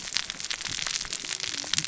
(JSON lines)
{"label": "biophony, cascading saw", "recorder": "SoundTrap 600 or HydroMoth"}